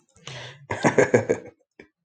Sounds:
Laughter